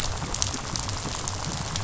{"label": "biophony, rattle", "recorder": "SoundTrap 500"}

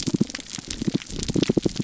{"label": "biophony, damselfish", "recorder": "SoundTrap 300"}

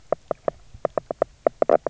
{"label": "biophony, knock croak", "recorder": "SoundTrap 300"}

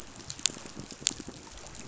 {"label": "biophony, pulse", "recorder": "SoundTrap 500"}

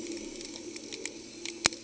{"label": "anthrophony, boat engine", "recorder": "HydroMoth"}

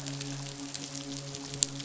{"label": "biophony, midshipman", "recorder": "SoundTrap 500"}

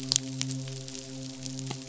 {"label": "biophony, midshipman", "recorder": "SoundTrap 500"}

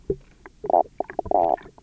{"label": "biophony, knock croak", "recorder": "SoundTrap 300"}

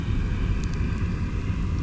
{"label": "anthrophony, boat engine", "recorder": "SoundTrap 300"}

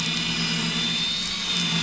{"label": "anthrophony, boat engine", "recorder": "SoundTrap 500"}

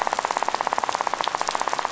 {"label": "biophony, rattle", "recorder": "SoundTrap 500"}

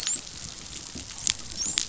{"label": "biophony, dolphin", "recorder": "SoundTrap 500"}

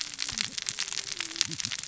{"label": "biophony, cascading saw", "recorder": "SoundTrap 600 or HydroMoth"}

